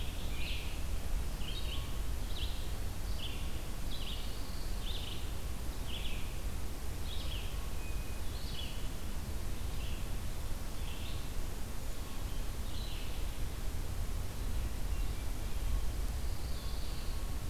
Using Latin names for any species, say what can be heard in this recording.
Piranga olivacea, Vireo olivaceus, Setophaga pinus, Catharus guttatus